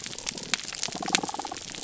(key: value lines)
label: biophony, damselfish
recorder: SoundTrap 300